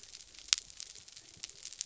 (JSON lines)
{"label": "biophony", "recorder": "SoundTrap 300"}